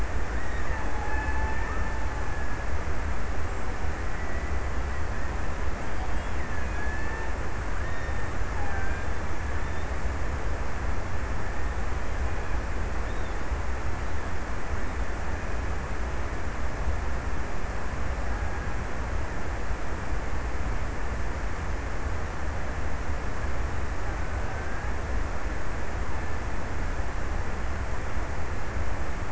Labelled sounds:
0.0	3.6	killer whale, Bigg's (transient), 0.58 to 2.7 kHz
6.1	9.8	killer whale, Bigg's (transient), 1.1 to 2.7 kHz

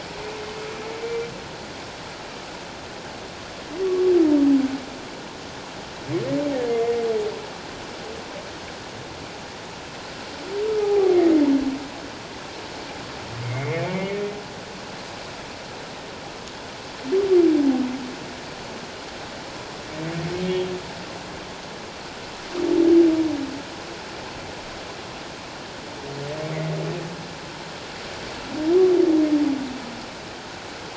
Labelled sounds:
10.8	11.2	humpback whale, 0.78 to 0.88 kHz
13.4	14.2	humpback whale, 2.0 to 2.5 kHz

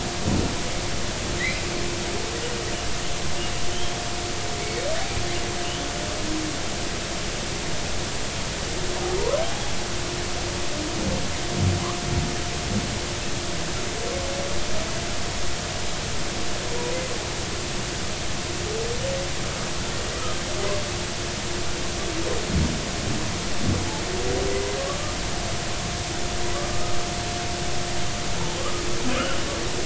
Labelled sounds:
1.4	1.6	humpback whale, 1.8 to 2.7 kHz
4.6	4.9	humpback whale, 2.1 to 2.3 kHz
9.1	9.4	humpback whale, 0.90 to 1.2 kHz
26.7	26.9	humpback whale, 1.2 to 1.4 kHz
28.6	28.8	humpback whale, 1.0 to 1.3 kHz

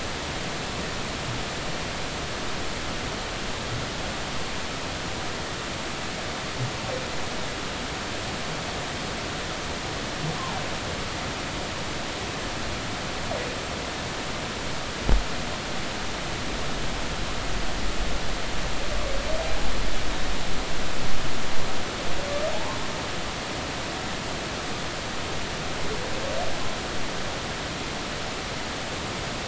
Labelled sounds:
22.5	22.8	humpback whale, 0.80 to 1.1 kHz

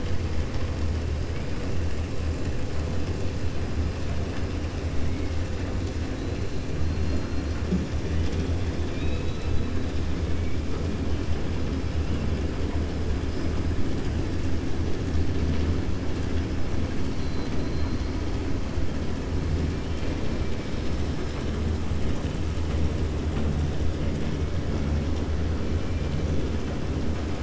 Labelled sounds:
8.8	9.7	killer whale, 2.4 to 4.4 kHz

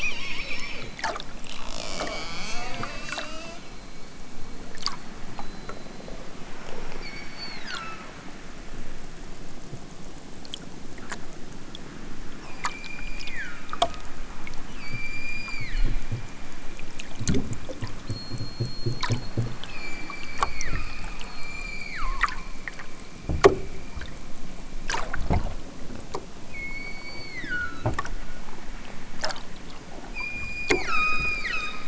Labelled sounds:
1.7	3.1	killer whale, southern Alaska resident, 0.96 to 5.0 kHz
6.8	8.2	killer whale, southern Alaska resident, 1.0 to 5.0 kHz
12.4	13.7	killer whale, southern Alaska resident, 0.96 to 8.0 kHz
14.7	16.0	killer whale, southern Alaska resident, 1.1 to 8.0 kHz
19.7	22.3	killer whale, southern Alaska resident, 0.83 to 7.7 kHz
26.4	27.9	killer whale, southern Alaska resident, 1.0 to 8.0 kHz
30.0	31.8	killer whale, southern Alaska resident, 0.92 to 8.0 kHz

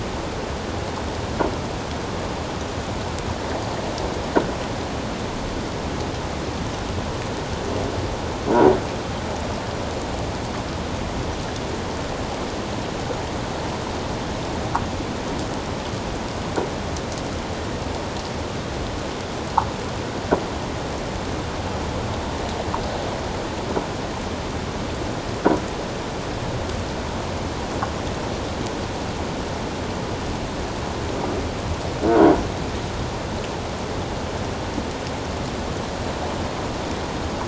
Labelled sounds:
32.0	32.3	croaking sound likely from a nearby submerged object, 1.4 to 1.7 kHz

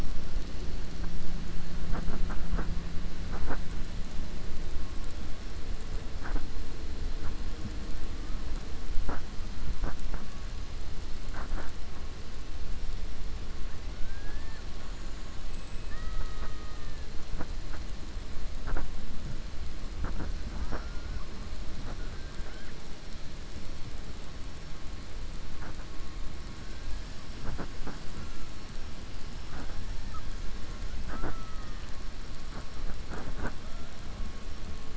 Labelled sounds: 14.0	14.6	killer whale, 0.75 to 2.7 kHz
15.8	17.0	killer whale, 0.65 to 3.8 kHz

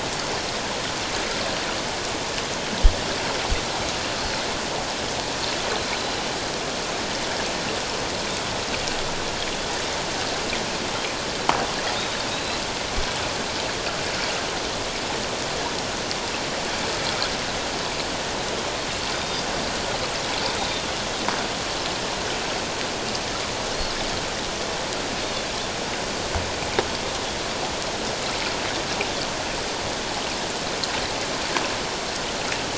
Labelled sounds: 12.3	12.6	Pacific white-sided dolphin, 3.7 to 4.2 kHz
19.2	19.4	Pacific white-sided dolphin, 3.5 to 3.7 kHz

